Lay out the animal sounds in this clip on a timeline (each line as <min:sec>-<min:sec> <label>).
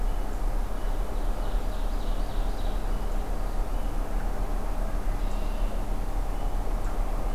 0:01.0-0:02.8 Ovenbird (Seiurus aurocapilla)
0:05.0-0:05.9 Red-winged Blackbird (Agelaius phoeniceus)